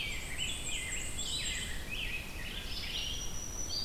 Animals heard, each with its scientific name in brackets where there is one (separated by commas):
Red-eyed Vireo (Vireo olivaceus), Rose-breasted Grosbeak (Pheucticus ludovicianus), Black-and-white Warbler (Mniotilta varia), Black-throated Green Warbler (Setophaga virens)